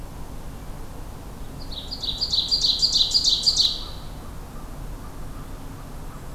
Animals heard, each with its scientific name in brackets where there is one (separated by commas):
Ovenbird (Seiurus aurocapilla)